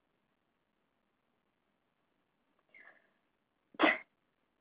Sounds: Sneeze